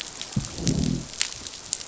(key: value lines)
label: biophony, growl
recorder: SoundTrap 500